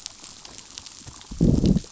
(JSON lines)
{"label": "biophony, growl", "recorder": "SoundTrap 500"}